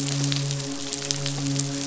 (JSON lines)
{"label": "biophony, midshipman", "recorder": "SoundTrap 500"}